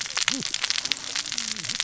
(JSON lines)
{"label": "biophony, cascading saw", "recorder": "SoundTrap 600 or HydroMoth"}